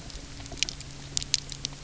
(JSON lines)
{"label": "anthrophony, boat engine", "recorder": "SoundTrap 300"}